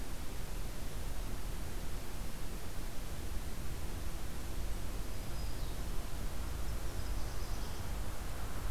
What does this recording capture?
Black-throated Green Warbler, Nashville Warbler